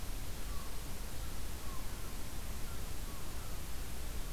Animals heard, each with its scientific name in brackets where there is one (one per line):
American Herring Gull (Larus smithsonianus)